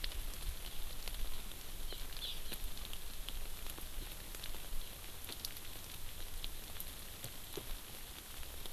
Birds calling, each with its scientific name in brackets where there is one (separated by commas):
Hawaii Amakihi (Chlorodrepanis virens)